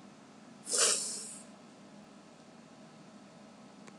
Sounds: Sniff